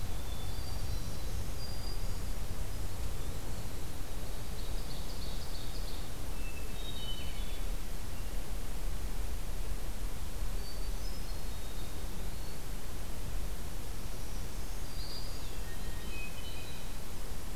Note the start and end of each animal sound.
0.0s-1.4s: Hermit Thrush (Catharus guttatus)
0.7s-2.5s: Black-throated Green Warbler (Setophaga virens)
2.6s-3.7s: Eastern Wood-Pewee (Contopus virens)
4.2s-6.1s: Ovenbird (Seiurus aurocapilla)
6.4s-7.7s: Wood Thrush (Hylocichla mustelina)
10.4s-12.0s: Hermit Thrush (Catharus guttatus)
11.6s-12.6s: Eastern Wood-Pewee (Contopus virens)
14.1s-15.6s: Black-throated Green Warbler (Setophaga virens)
14.8s-15.9s: Eastern Wood-Pewee (Contopus virens)
15.6s-17.0s: Hermit Thrush (Catharus guttatus)

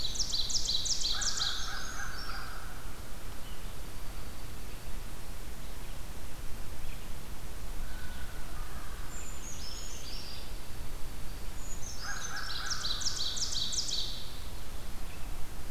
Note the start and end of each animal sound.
0.0s-1.9s: Ovenbird (Seiurus aurocapilla)
1.0s-3.0s: American Crow (Corvus brachyrhynchos)
1.2s-2.8s: Brown Creeper (Certhia americana)
3.7s-5.3s: Dark-eyed Junco (Junco hyemalis)
7.7s-9.1s: American Crow (Corvus brachyrhynchos)
8.7s-10.7s: Brown Creeper (Certhia americana)
9.0s-10.6s: Purple Finch (Haemorhous purpureus)
11.4s-12.8s: Brown Creeper (Certhia americana)
12.0s-13.0s: American Crow (Corvus brachyrhynchos)
12.2s-14.9s: Ovenbird (Seiurus aurocapilla)

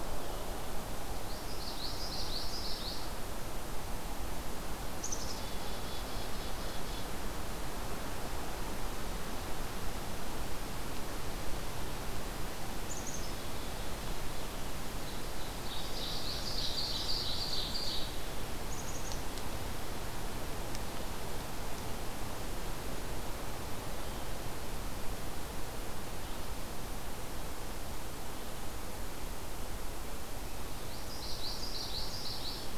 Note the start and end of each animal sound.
1.2s-3.1s: Common Yellowthroat (Geothlypis trichas)
4.9s-7.1s: Black-capped Chickadee (Poecile atricapillus)
12.8s-14.6s: Black-capped Chickadee (Poecile atricapillus)
15.5s-18.2s: Ovenbird (Seiurus aurocapilla)
15.6s-17.5s: Common Yellowthroat (Geothlypis trichas)
18.7s-19.5s: Black-capped Chickadee (Poecile atricapillus)
30.8s-32.8s: Common Yellowthroat (Geothlypis trichas)

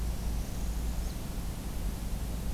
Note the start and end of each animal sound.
0.0s-1.1s: Northern Parula (Setophaga americana)

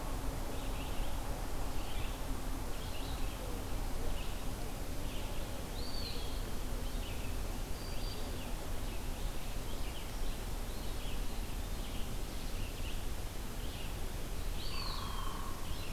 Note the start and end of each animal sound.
0.0s-15.9s: Red-eyed Vireo (Vireo olivaceus)
5.3s-6.5s: Eastern Wood-Pewee (Contopus virens)
7.4s-8.5s: Black-throated Green Warbler (Setophaga virens)
10.6s-11.5s: Eastern Wood-Pewee (Contopus virens)
14.2s-15.4s: Eastern Wood-Pewee (Contopus virens)
14.7s-15.8s: Hairy Woodpecker (Dryobates villosus)

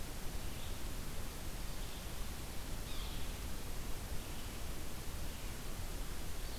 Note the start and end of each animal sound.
0.0s-6.6s: Red-eyed Vireo (Vireo olivaceus)
2.9s-3.1s: Yellow-bellied Sapsucker (Sphyrapicus varius)

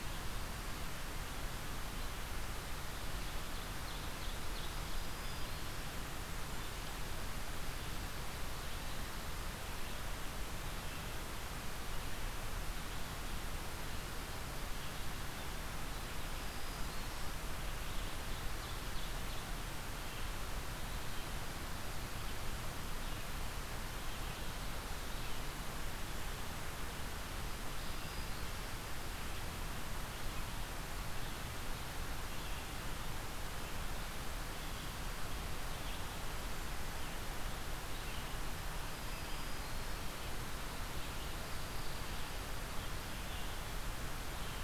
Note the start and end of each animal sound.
0.0s-44.6s: Red-eyed Vireo (Vireo olivaceus)
3.1s-5.1s: Ovenbird (Seiurus aurocapilla)
4.8s-5.9s: Black-throated Green Warbler (Setophaga virens)
16.1s-17.3s: Black-throated Green Warbler (Setophaga virens)
17.5s-19.7s: Ovenbird (Seiurus aurocapilla)
27.2s-28.8s: Black-throated Green Warbler (Setophaga virens)
38.7s-40.2s: Black-throated Green Warbler (Setophaga virens)
41.3s-42.7s: Dark-eyed Junco (Junco hyemalis)

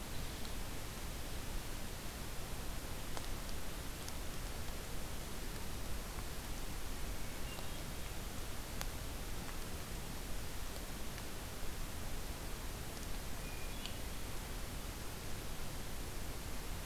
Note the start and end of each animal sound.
7.1s-8.2s: Hermit Thrush (Catharus guttatus)
13.4s-14.4s: Hermit Thrush (Catharus guttatus)

